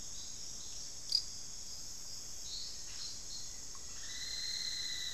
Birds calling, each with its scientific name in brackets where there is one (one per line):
Black-faced Antthrush (Formicarius analis)
Plain-brown Woodcreeper (Dendrocincla fuliginosa)